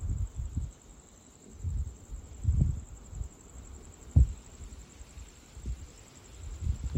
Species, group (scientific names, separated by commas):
Gryllodes sigillatus, Orthoptera